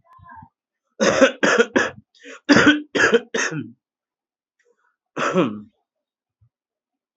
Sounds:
Cough